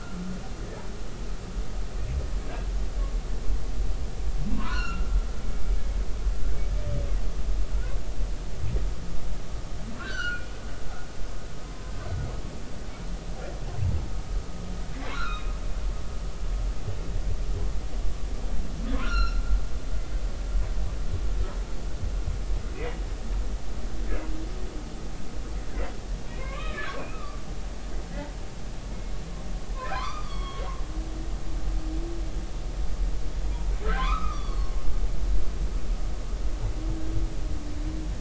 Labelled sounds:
4.5	6.0	humpback whale, 0.93 to 4.5 kHz
10.0	10.5	humpback whale, 1.3 to 4.6 kHz
15.1	15.5	humpback whale, 1.2 to 4.2 kHz
19.0	19.4	humpback whale, 1.2 to 5.8 kHz
22.7	23.0	humpback whale, 1.9 to 2.6 kHz
26.4	27.4	humpback whale, 0.99 to 2.6 kHz
29.9	30.6	humpback whale, 0.96 to 5.6 kHz
33.8	34.7	humpback whale, 0.96 to 4.6 kHz

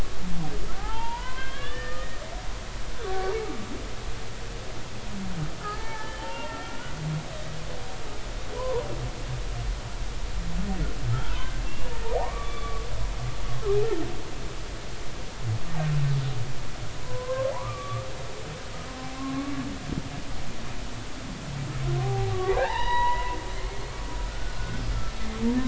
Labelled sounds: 0.8	2.2	humpback whale, 0.80 to 3.6 kHz
3.0	3.3	humpback whale, 1.1 to 1.5 kHz
5.6	7.0	humpback whale, 0.80 to 3.3 kHz
8.6	8.9	humpback whale, 0.86 to 1.1 kHz
11.1	12.8	humpback whale, 0.80 to 3.6 kHz
17.0	18.0	humpback whale, 0.80 to 1.6 kHz
19.2	19.5	humpback whale, 1.0 to 1.2 kHz
22.0	23.4	humpback whale, 0.80 to 4.1 kHz
24.3	24.8	humpback whale, 1.4 to 1.5 kHz

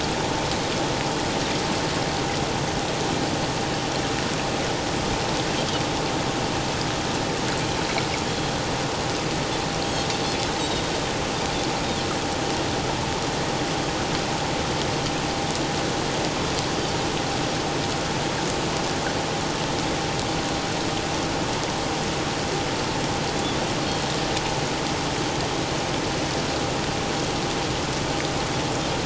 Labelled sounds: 8.3	8.5	Pacific white-sided dolphin, 3.2 to 3.4 kHz
10.6	10.8	Pacific white-sided dolphin, 3.6 to 3.9 kHz

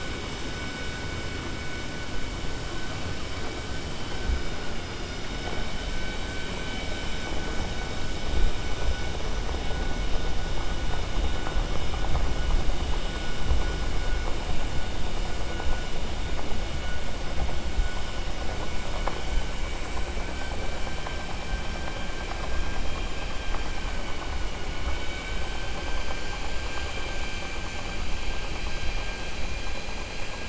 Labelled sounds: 19.1	20.7	vessel noise, 0.95 to 7.9 kHz
24.6	25.7	vessel noise, 1.2 to 3.9 kHz

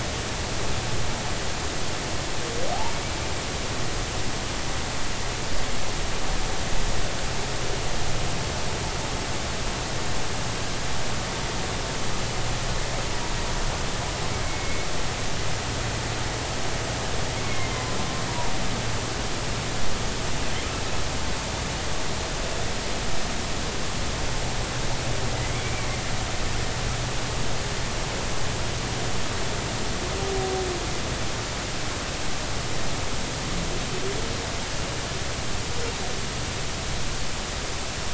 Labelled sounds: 2.7	3.0	humpback whale, 0.80 to 0.99 kHz
14.4	14.9	humpback whale, 2.1 to 2.2 kHz
17.4	18.5	humpback whale, 0.90 to 2.2 kHz
25.5	25.9	humpback whale, 2.1 to 2.5 kHz

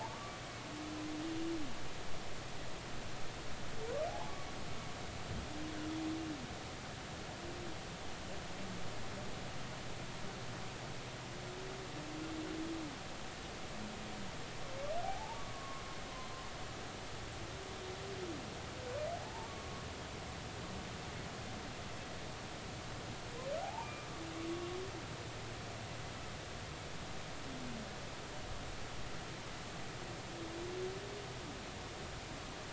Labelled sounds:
0.1	0.4	humpback whale, 1.1 to 1.2 kHz
4.1	4.3	humpback whale, 0.80 to 1.1 kHz
15.0	15.9	humpback whale, 0.80 to 1.2 kHz
19.2	19.9	humpback whale, 0.80 to 1.2 kHz
23.6	24.8	humpback whale, 0.80 to 2.5 kHz

